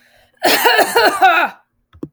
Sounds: Cough